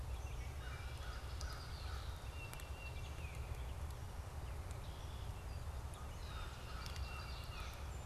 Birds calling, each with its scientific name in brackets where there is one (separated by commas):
Wood Thrush (Hylocichla mustelina), Gray Catbird (Dumetella carolinensis), Red-winged Blackbird (Agelaius phoeniceus), American Crow (Corvus brachyrhynchos), Baltimore Oriole (Icterus galbula)